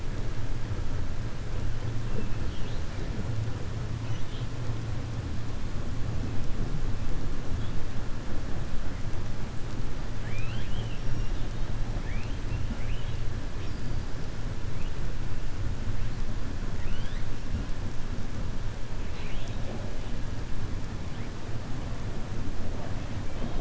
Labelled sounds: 4.0	4.5	killer whale, 2.0 to 4.1 kHz
10.1	11.4	killer whale, 1.3 to 5.9 kHz
11.9	12.4	killer whale, 0.88 to 3.3 kHz
12.7	13.2	killer whale, 1.4 to 3.9 kHz
16.7	17.3	killer whale, 1.5 to 5.1 kHz

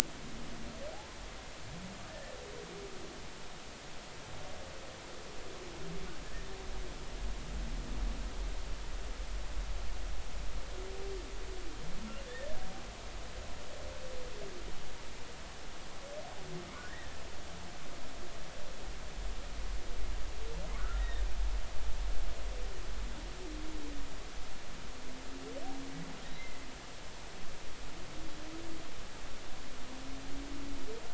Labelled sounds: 2.1	2.4	humpback whale, 1.7 to 2.0 kHz
16.8	17.2	humpback whale, 1.6 to 2.0 kHz
20.7	21.2	humpback whale, 1.0 to 2.0 kHz

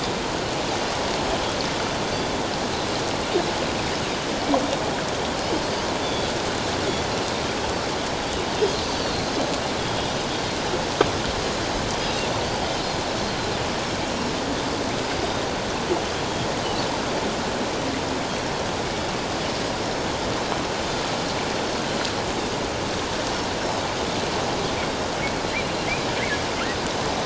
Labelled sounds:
6.0	6.3	Pacific white-sided dolphin, 3.3 to 3.6 kHz
8.8	10.1	Pacific white-sided dolphin, 3.2 to 6.2 kHz
14.1	14.4	Pacific white-sided dolphin, 5.2 to 5.6 kHz
19.8	20.6	Pacific white-sided dolphin, 3.8 to 5.4 kHz

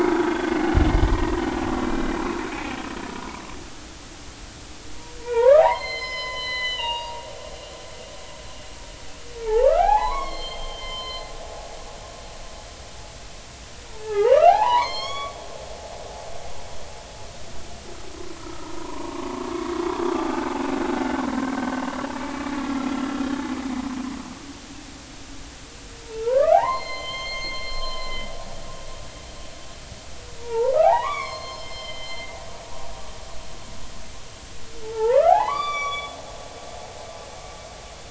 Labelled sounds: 0.0	1.3	humpback whale, 1.3 to 2.0 kHz
1.8	2.1	humpback whale, 2.3 to 2.4 kHz
2.5	2.8	humpback whale, 2.2 to 2.4 kHz
5.2	7.2	humpback whale, 0.80 to 6.7 kHz
9.4	11.3	humpback whale, 0.80 to 4.4 kHz
13.9	15.3	humpback whale, 0.80 to 7.6 kHz
18.4	19.7	humpback whale, 0.86 to 1.4 kHz
20.1	20.6	humpback whale, 1.2 to 2.4 kHz
26.0	28.2	humpback whale, 0.80 to 6.4 kHz
30.4	32.3	humpback whale, 0.80 to 6.5 kHz
34.8	36.2	humpback whale, 0.80 to 7.1 kHz
36.5	36.9	humpback whale, 4.5 to 4.7 kHz

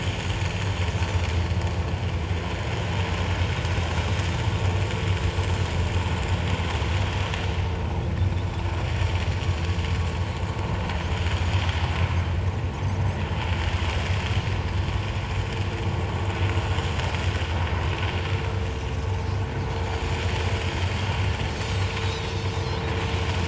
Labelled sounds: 22.0	22.3	Pacific white-sided dolphin, 3.6 to 4.2 kHz

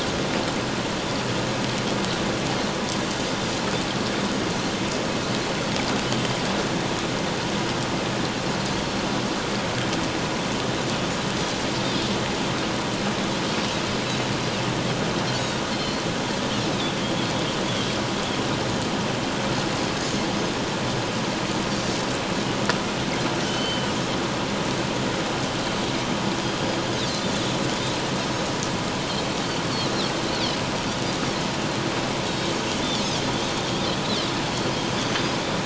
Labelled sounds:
6.0	6.3	Pacific white-sided dolphin, 2.9 to 3.2 kHz
15.7	16.0	Pacific white-sided dolphin, 4.1 to 4.4 kHz
23.4	23.9	Pacific white-sided dolphin, 2.9 to 3.1 kHz
27.3	27.6	Pacific white-sided dolphin, 3.4 to 3.6 kHz

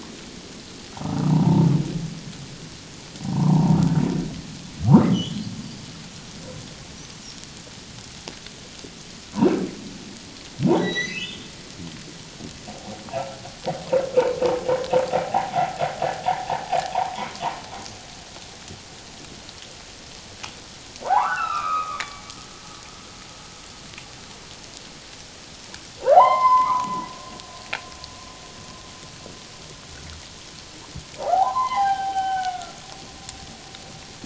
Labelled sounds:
1.0	1.7	humpback whale, 0.84 to 1.5 kHz
3.3	3.8	humpback whale, 0.78 to 1.2 kHz
5.1	5.4	humpback whale, 2.9 to 3.5 kHz
10.8	11.5	humpback whale, 1.8 to 6.2 kHz
12.7	13.0	humpback whale, 0.78 to 0.94 kHz
15.2	15.8	humpback whale, 0.78 to 1.0 kHz
16.9	17.2	humpback whale, 0.78 to 1.2 kHz
21.0	22.3	humpback whale, 0.78 to 3.0 kHz
26.1	27.1	humpback whale, 0.78 to 5.2 kHz
31.2	32.8	humpback whale, 0.78 to 3.3 kHz

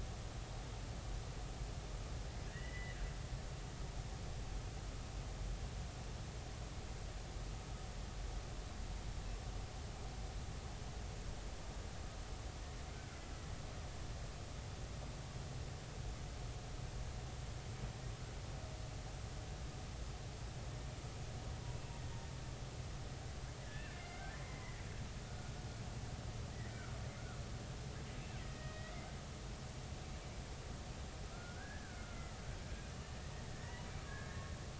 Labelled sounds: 2.5	3.0	killer whale, Bigg's (transient), 1.6 to 3.0 kHz
23.6	24.8	killer whale, Bigg's (transient), 1.5 to 2.2 kHz
25.3	25.5	killer whale, Bigg's (transient), 1.4 to 1.5 kHz
26.5	26.9	killer whale, Bigg's (transient), 1.3 to 2.0 kHz
28.4	28.9	killer whale, Bigg's (transient), 1.8 to 2.0 kHz
31.3	32.4	killer whale, Bigg's (transient), 1.3 to 2.1 kHz
33.5	34.2	killer whale, Bigg's (transient), 0.90 to 2.0 kHz

